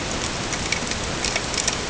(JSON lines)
{"label": "ambient", "recorder": "HydroMoth"}